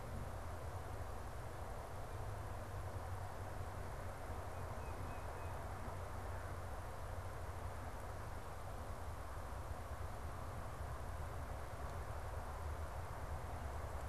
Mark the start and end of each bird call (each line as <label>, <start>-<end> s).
Tufted Titmouse (Baeolophus bicolor), 4.2-5.6 s